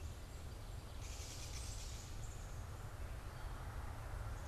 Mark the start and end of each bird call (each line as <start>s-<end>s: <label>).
0.8s-2.0s: Gray Catbird (Dumetella carolinensis)
1.4s-2.5s: Black-capped Chickadee (Poecile atricapillus)